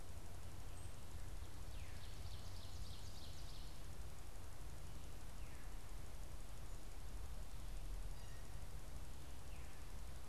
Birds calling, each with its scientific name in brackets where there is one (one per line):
unidentified bird
Ovenbird (Seiurus aurocapilla)